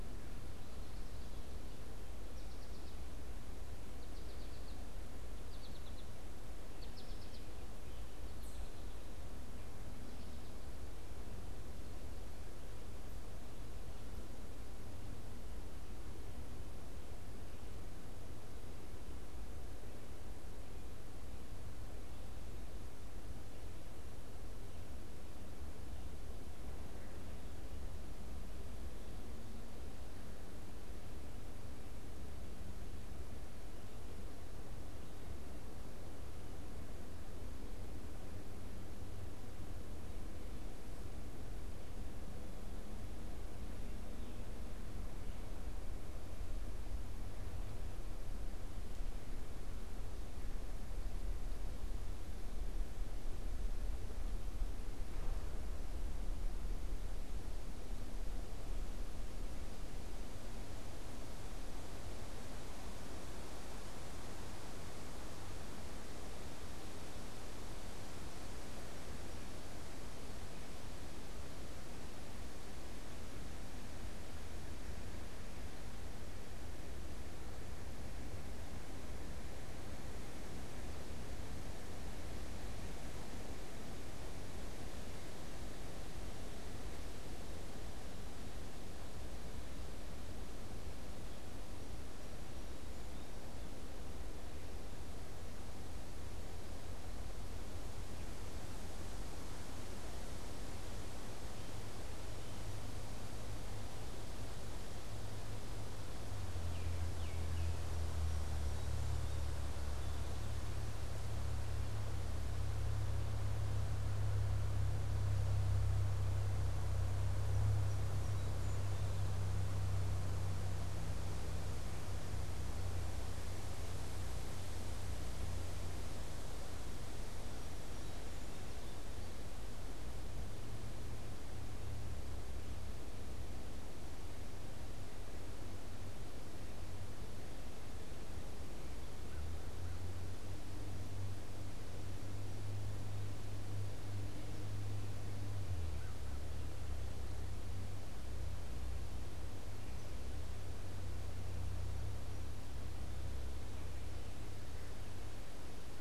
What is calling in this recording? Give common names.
American Goldfinch, Baltimore Oriole, Song Sparrow